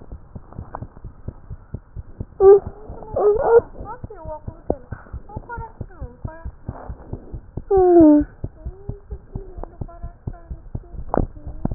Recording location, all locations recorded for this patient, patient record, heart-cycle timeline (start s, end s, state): tricuspid valve (TV)
pulmonary valve (PV)+tricuspid valve (TV)+mitral valve (MV)
#Age: Child
#Sex: Female
#Height: 81.0 cm
#Weight: 13.415 kg
#Pregnancy status: False
#Murmur: Absent
#Murmur locations: nan
#Most audible location: nan
#Systolic murmur timing: nan
#Systolic murmur shape: nan
#Systolic murmur grading: nan
#Systolic murmur pitch: nan
#Systolic murmur quality: nan
#Diastolic murmur timing: nan
#Diastolic murmur shape: nan
#Diastolic murmur grading: nan
#Diastolic murmur pitch: nan
#Diastolic murmur quality: nan
#Outcome: Normal
#Campaign: 2015 screening campaign
0.00	4.06	unannotated
4.06	4.23	diastole
4.23	4.32	S1
4.32	4.44	systole
4.44	4.52	S2
4.52	4.68	diastole
4.68	4.75	S1
4.75	4.90	systole
4.90	4.97	S2
4.97	5.11	diastole
5.11	5.23	S1
5.23	5.33	systole
5.33	5.41	S2
5.41	5.56	diastole
5.56	5.63	S1
5.63	5.78	systole
5.78	5.86	S2
5.86	5.99	diastole
5.99	6.09	S1
6.09	6.23	systole
6.23	6.29	S2
6.29	6.43	diastole
6.43	6.53	S1
6.53	6.66	systole
6.66	6.72	S2
6.72	6.87	diastole
6.87	6.93	S1
6.93	7.10	systole
7.10	7.18	S2
7.18	7.32	diastole
7.32	7.41	S1
7.41	7.55	systole
7.55	7.62	S2
7.62	8.62	unannotated
8.62	8.72	S1
8.72	8.87	systole
8.87	8.96	S2
8.96	9.10	diastole
9.10	9.17	S1
9.17	9.33	systole
9.33	9.43	S2
9.43	9.55	diastole
9.55	9.66	S1
9.66	9.79	systole
9.79	9.88	S2
9.88	10.01	diastole
10.01	10.11	S1
10.11	10.25	systole
10.25	10.34	S2
10.34	10.48	diastole
10.48	10.57	S1
10.57	10.73	systole
10.73	10.81	S2
10.81	10.94	diastole
10.94	11.74	unannotated